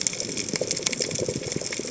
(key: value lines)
label: biophony, chatter
recorder: HydroMoth